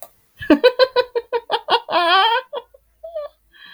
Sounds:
Laughter